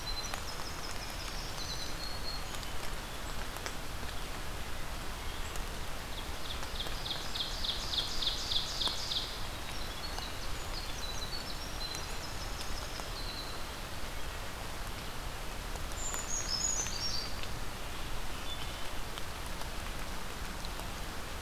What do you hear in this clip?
Winter Wren, Black-throated Green Warbler, Ovenbird, Brown Creeper, Wood Thrush